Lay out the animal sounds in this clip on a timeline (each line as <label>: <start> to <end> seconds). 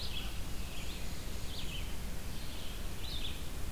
Red-eyed Vireo (Vireo olivaceus): 0.0 to 3.7 seconds
Black-and-white Warbler (Mniotilta varia): 0.5 to 1.9 seconds